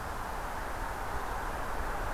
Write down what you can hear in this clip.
forest ambience